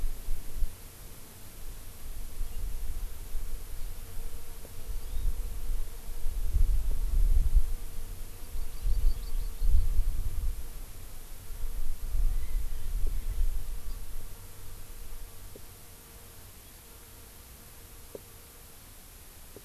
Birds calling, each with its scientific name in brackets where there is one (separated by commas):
Hawaii Amakihi (Chlorodrepanis virens), Erckel's Francolin (Pternistis erckelii)